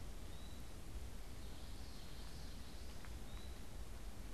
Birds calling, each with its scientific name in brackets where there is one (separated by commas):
Eastern Wood-Pewee (Contopus virens), Common Yellowthroat (Geothlypis trichas)